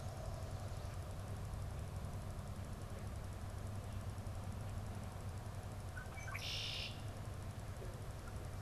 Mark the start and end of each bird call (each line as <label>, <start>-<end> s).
Red-winged Blackbird (Agelaius phoeniceus), 5.7-8.6 s